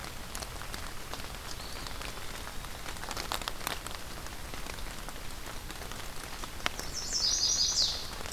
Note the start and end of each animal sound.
1.2s-2.9s: Eastern Wood-Pewee (Contopus virens)
6.7s-8.1s: Chestnut-sided Warbler (Setophaga pensylvanica)

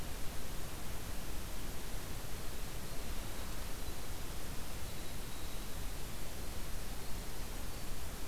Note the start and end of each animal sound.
2.7s-8.3s: Winter Wren (Troglodytes hiemalis)

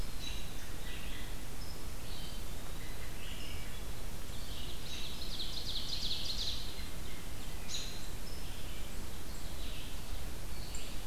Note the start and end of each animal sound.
0.0s-1.5s: American Robin (Turdus migratorius)
0.0s-11.1s: Red-eyed Vireo (Vireo olivaceus)
2.0s-3.2s: Eastern Wood-Pewee (Contopus virens)
3.2s-3.9s: Wood Thrush (Hylocichla mustelina)
4.0s-6.8s: Ovenbird (Seiurus aurocapilla)
7.6s-8.0s: American Robin (Turdus migratorius)
10.3s-11.1s: Eastern Wood-Pewee (Contopus virens)

